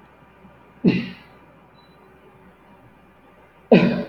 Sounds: Cough